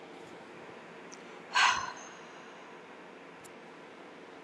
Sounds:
Sigh